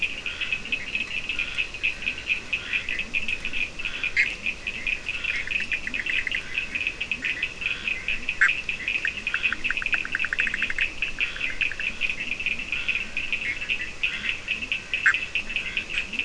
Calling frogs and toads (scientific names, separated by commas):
Leptodactylus latrans, Scinax perereca, Sphaenorhynchus surdus, Boana bischoffi